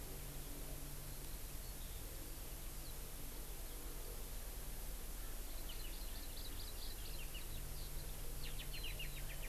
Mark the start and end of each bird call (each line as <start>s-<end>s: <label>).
1.1s-2.1s: Eurasian Skylark (Alauda arvensis)
5.7s-7.2s: Hawaii Amakihi (Chlorodrepanis virens)